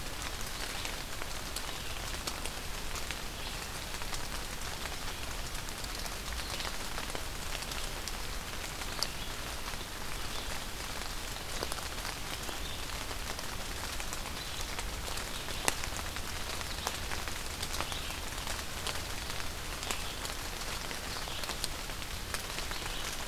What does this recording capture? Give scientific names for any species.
Vireo olivaceus